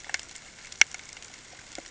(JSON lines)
{"label": "ambient", "recorder": "HydroMoth"}